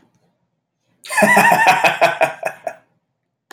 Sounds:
Laughter